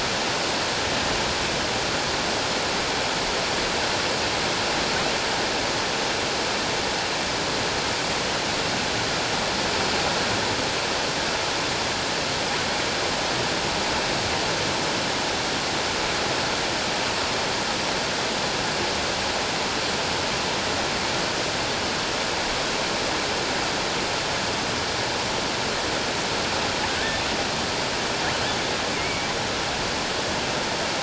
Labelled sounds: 28.9	29.3	killer whale, offshore, 2.1 to 2.4 kHz

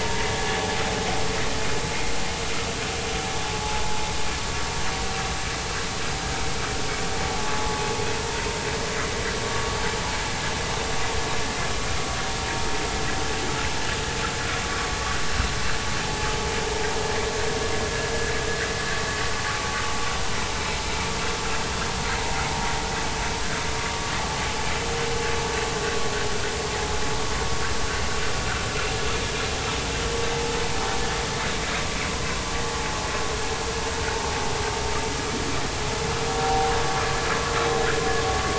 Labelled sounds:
7.3	7.5	vessel noise, 0.80 to 0.90 kHz
36.3	36.7	vessel noise, 0.80 to 0.86 kHz

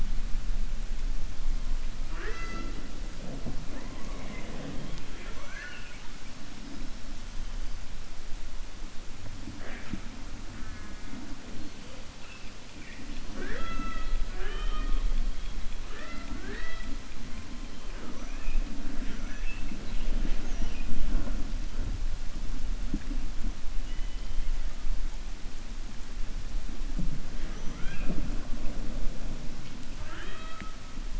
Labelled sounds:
4.8	6.0	killer whale, 0.56 to 5.2 kHz
18.9	19.7	killer whale, 1.4 to 3.5 kHz
29.9	30.7	killer whale, 0.35 to 3.9 kHz

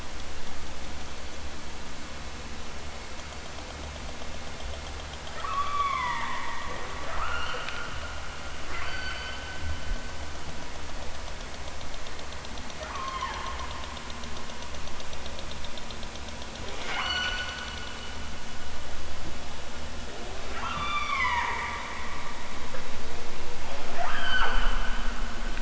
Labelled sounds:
5.3	6.5	killer whale, southern Alaska resident, 0.46 to 4.1 kHz
7.1	7.7	killer whale, southern Alaska resident, 0.46 to 5.1 kHz
8.7	9.5	killer whale, southern Alaska resident, 0.69 to 4.8 kHz
12.8	13.5	killer whale, southern Alaska resident, 0.46 to 4.2 kHz
16.7	17.5	killer whale, southern Alaska resident, 0.37 to 8.0 kHz
20.5	21.6	killer whale, southern Alaska resident, 0.32 to 7.6 kHz
23.9	24.7	killer whale, southern Alaska resident, 0.23 to 8.0 kHz

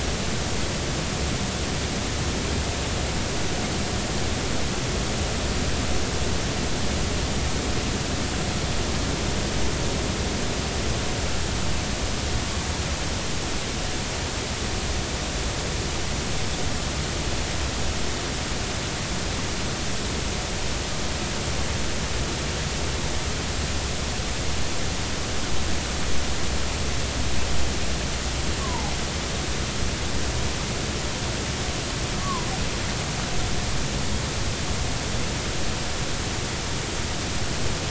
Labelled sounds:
28.6	28.9	humpback whale, 0.80 to 1.2 kHz
32.2	32.5	humpback whale, 0.93 to 1.2 kHz

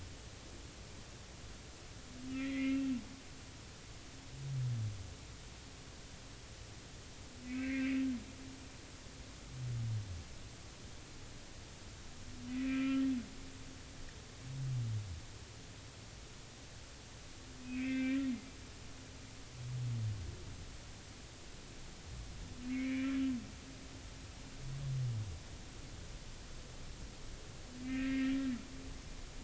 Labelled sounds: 2.3	2.9	humpback whale, 1.8 to 2.8 kHz
7.5	8.0	humpback whale, 1.5 to 2.5 kHz
8.4	8.8	humpback whale, 2.4 to 2.7 kHz
12.5	13.0	humpback whale, 1.3 to 2.7 kHz
17.6	18.2	humpback whale, 1.5 to 2.7 kHz
22.7	23.2	humpback whale, 1.9 to 3.0 kHz
27.8	28.3	humpback whale, 1.5 to 2.7 kHz

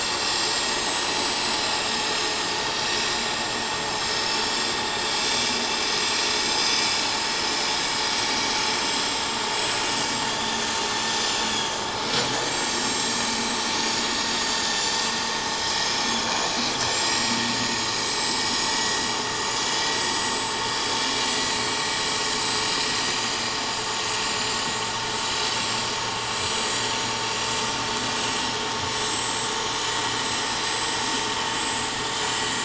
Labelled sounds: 0.7	4.4	vessel noise, 5.2 to 7.9 kHz
5.0	5.9	vessel noise, 4.8 to 7.7 kHz
8.2	9.0	vessel noise, 5.6 to 6.3 kHz
9.5	10.6	vessel noise, 4.6 to 7.8 kHz
11.0	16.5	vessel noise, 3.2 to 7.8 kHz
16.9	18.8	vessel noise, 1.9 to 8.0 kHz
19.9	22.0	vessel noise, 7.5 to 7.9 kHz
23.2	24.2	vessel noise, 6.2 to 7.6 kHz
24.9	25.8	vessel noise, 7.5 to 8.0 kHz
26.2	27.6	vessel noise, 7.4 to 7.8 kHz
28.1	29.4	vessel noise, 6.6 to 7.8 kHz
30.6	31.0	vessel noise, 4.8 to 7.9 kHz

